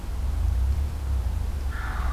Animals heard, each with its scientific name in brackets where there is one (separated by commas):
Wild Turkey (Meleagris gallopavo)